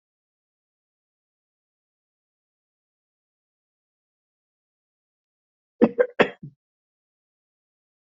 {"expert_labels": [{"quality": "poor", "cough_type": "dry", "dyspnea": false, "wheezing": false, "stridor": false, "choking": false, "congestion": false, "nothing": true, "diagnosis": "healthy cough", "severity": "pseudocough/healthy cough"}], "age": 40, "gender": "male", "respiratory_condition": false, "fever_muscle_pain": false, "status": "COVID-19"}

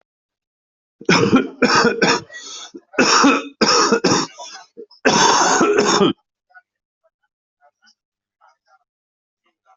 {"expert_labels": [{"quality": "ok", "cough_type": "wet", "dyspnea": false, "wheezing": false, "stridor": false, "choking": false, "congestion": false, "nothing": true, "diagnosis": "lower respiratory tract infection", "severity": "mild"}, {"quality": "ok", "cough_type": "wet", "dyspnea": false, "wheezing": false, "stridor": false, "choking": true, "congestion": false, "nothing": false, "diagnosis": "lower respiratory tract infection", "severity": "mild"}, {"quality": "good", "cough_type": "wet", "dyspnea": false, "wheezing": false, "stridor": false, "choking": false, "congestion": false, "nothing": true, "diagnosis": "lower respiratory tract infection", "severity": "mild"}, {"quality": "good", "cough_type": "wet", "dyspnea": false, "wheezing": false, "stridor": false, "choking": false, "congestion": false, "nothing": true, "diagnosis": "lower respiratory tract infection", "severity": "severe"}], "age": 44, "gender": "male", "respiratory_condition": false, "fever_muscle_pain": false, "status": "healthy"}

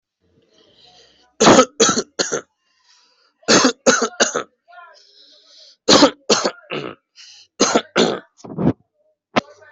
{"expert_labels": [{"quality": "ok", "cough_type": "wet", "dyspnea": false, "wheezing": false, "stridor": false, "choking": false, "congestion": false, "nothing": true, "diagnosis": "lower respiratory tract infection", "severity": "mild"}], "age": 22, "gender": "male", "respiratory_condition": true, "fever_muscle_pain": false, "status": "healthy"}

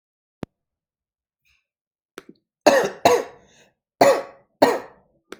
{"expert_labels": [{"quality": "good", "cough_type": "dry", "dyspnea": false, "wheezing": false, "stridor": false, "choking": false, "congestion": false, "nothing": true, "diagnosis": "COVID-19", "severity": "mild"}], "age": 37, "gender": "male", "respiratory_condition": false, "fever_muscle_pain": false, "status": "symptomatic"}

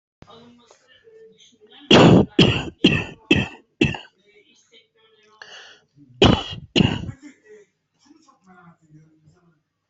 {"expert_labels": [{"quality": "poor", "cough_type": "dry", "dyspnea": true, "wheezing": true, "stridor": false, "choking": false, "congestion": false, "nothing": true, "diagnosis": "obstructive lung disease", "severity": "mild"}], "age": 53, "gender": "male", "respiratory_condition": false, "fever_muscle_pain": false, "status": "COVID-19"}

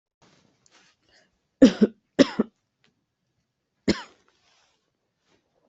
{"expert_labels": [{"quality": "good", "cough_type": "dry", "dyspnea": false, "wheezing": false, "stridor": false, "choking": false, "congestion": false, "nothing": true, "diagnosis": "healthy cough", "severity": "pseudocough/healthy cough"}], "age": 30, "gender": "female", "respiratory_condition": false, "fever_muscle_pain": true, "status": "COVID-19"}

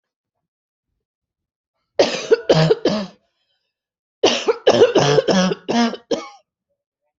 {"expert_labels": [{"quality": "good", "cough_type": "dry", "dyspnea": false, "wheezing": false, "stridor": false, "choking": false, "congestion": false, "nothing": true, "diagnosis": "lower respiratory tract infection", "severity": "mild"}], "age": 30, "gender": "female", "respiratory_condition": false, "fever_muscle_pain": true, "status": "symptomatic"}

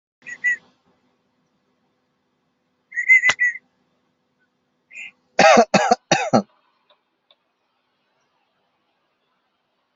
{"expert_labels": [{"quality": "ok", "cough_type": "dry", "dyspnea": false, "wheezing": false, "stridor": false, "choking": false, "congestion": false, "nothing": true, "diagnosis": "lower respiratory tract infection", "severity": "mild"}, {"quality": "ok", "cough_type": "dry", "dyspnea": false, "wheezing": false, "stridor": false, "choking": false, "congestion": false, "nothing": true, "diagnosis": "COVID-19", "severity": "mild"}, {"quality": "good", "cough_type": "dry", "dyspnea": false, "wheezing": false, "stridor": false, "choking": false, "congestion": false, "nothing": true, "diagnosis": "healthy cough", "severity": "pseudocough/healthy cough"}, {"quality": "good", "cough_type": "dry", "dyspnea": false, "wheezing": false, "stridor": false, "choking": false, "congestion": false, "nothing": true, "diagnosis": "healthy cough", "severity": "pseudocough/healthy cough"}]}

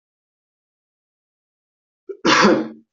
{"expert_labels": [{"quality": "good", "cough_type": "dry", "dyspnea": false, "wheezing": false, "stridor": false, "choking": false, "congestion": false, "nothing": true, "diagnosis": "upper respiratory tract infection", "severity": "unknown"}], "age": 41, "gender": "male", "respiratory_condition": true, "fever_muscle_pain": false, "status": "COVID-19"}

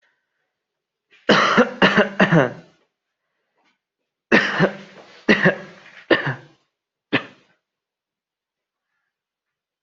{"expert_labels": [{"quality": "good", "cough_type": "dry", "dyspnea": false, "wheezing": false, "stridor": false, "choking": false, "congestion": false, "nothing": true, "diagnosis": "upper respiratory tract infection", "severity": "mild"}], "gender": "male", "respiratory_condition": true, "fever_muscle_pain": true, "status": "COVID-19"}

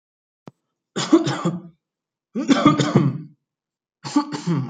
{"expert_labels": [{"quality": "good", "cough_type": "dry", "dyspnea": false, "wheezing": false, "stridor": false, "choking": false, "congestion": false, "nothing": true, "diagnosis": "upper respiratory tract infection", "severity": "mild"}], "age": 31, "gender": "male", "respiratory_condition": false, "fever_muscle_pain": false, "status": "symptomatic"}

